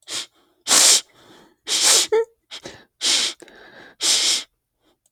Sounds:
Sniff